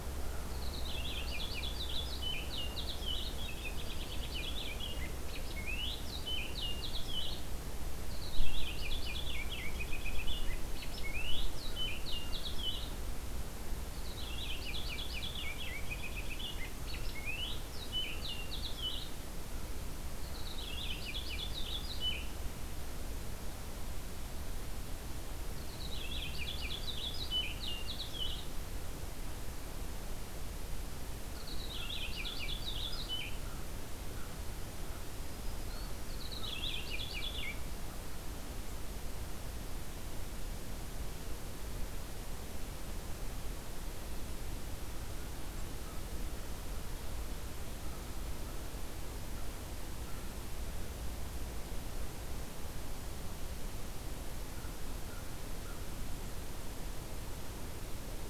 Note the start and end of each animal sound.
[0.00, 0.59] American Crow (Corvus brachyrhynchos)
[0.36, 7.64] Purple Finch (Haemorhous purpureus)
[8.04, 12.93] Purple Finch (Haemorhous purpureus)
[14.01, 19.35] Purple Finch (Haemorhous purpureus)
[20.09, 22.62] Purple Finch (Haemorhous purpureus)
[25.33, 28.55] Purple Finch (Haemorhous purpureus)
[31.22, 33.44] Purple Finch (Haemorhous purpureus)
[31.81, 36.86] American Crow (Corvus brachyrhynchos)
[35.07, 36.06] Black-throated Green Warbler (Setophaga virens)
[35.92, 37.69] Purple Finch (Haemorhous purpureus)
[44.91, 48.92] American Crow (Corvus brachyrhynchos)
[54.34, 56.00] American Crow (Corvus brachyrhynchos)

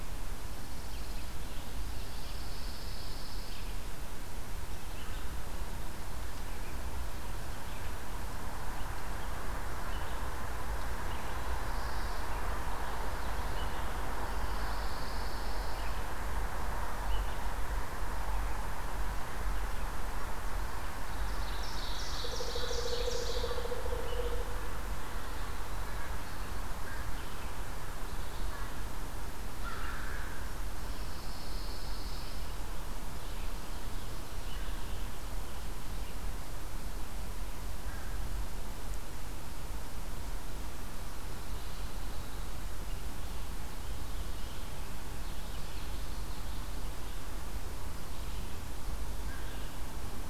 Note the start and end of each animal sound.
[0.29, 1.48] Pine Warbler (Setophaga pinus)
[1.84, 4.07] Pine Warbler (Setophaga pinus)
[13.94, 16.37] Pine Warbler (Setophaga pinus)
[20.84, 24.02] Ovenbird (Seiurus aurocapilla)
[22.18, 24.53] Pileated Woodpecker (Dryocopus pileatus)
[26.71, 30.66] American Crow (Corvus brachyrhynchos)
[30.39, 32.75] Pine Warbler (Setophaga pinus)
[45.06, 46.76] Common Yellowthroat (Geothlypis trichas)

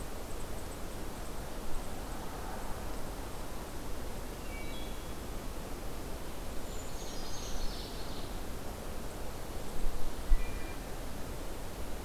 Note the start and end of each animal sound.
[4.23, 5.36] Wood Thrush (Hylocichla mustelina)
[6.39, 8.45] Ovenbird (Seiurus aurocapilla)
[6.48, 8.44] Brown Creeper (Certhia americana)
[9.98, 11.38] Wood Thrush (Hylocichla mustelina)

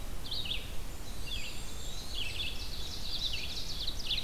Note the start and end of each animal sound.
[0.00, 4.24] Red-eyed Vireo (Vireo olivaceus)
[0.86, 2.36] Blackburnian Warbler (Setophaga fusca)
[0.88, 2.63] Eastern Wood-Pewee (Contopus virens)
[1.64, 4.24] Ovenbird (Seiurus aurocapilla)

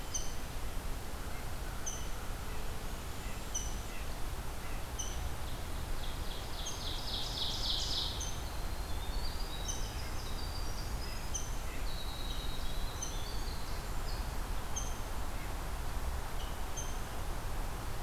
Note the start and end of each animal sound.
[0.00, 18.02] Rose-breasted Grosbeak (Pheucticus ludovicianus)
[1.20, 5.07] Red-breasted Nuthatch (Sitta canadensis)
[5.98, 8.24] Ovenbird (Seiurus aurocapilla)
[8.44, 14.06] Winter Wren (Troglodytes hiemalis)

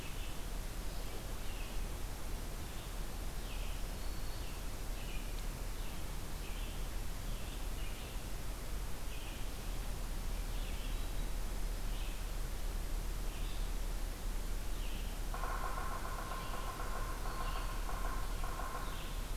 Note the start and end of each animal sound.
[0.00, 19.36] Red-eyed Vireo (Vireo olivaceus)
[3.87, 4.95] Black-throated Green Warbler (Setophaga virens)
[15.16, 19.04] Yellow-bellied Sapsucker (Sphyrapicus varius)
[17.13, 18.19] Black-throated Green Warbler (Setophaga virens)

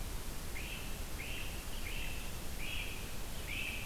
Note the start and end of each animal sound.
[0.00, 3.85] Great Crested Flycatcher (Myiarchus crinitus)

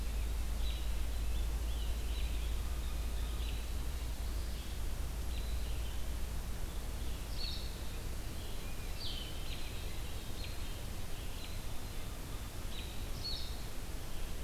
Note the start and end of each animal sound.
[0.57, 2.36] Scarlet Tanager (Piranga olivacea)
[0.58, 14.44] American Robin (Turdus migratorius)
[7.07, 14.44] Blue-headed Vireo (Vireo solitarius)

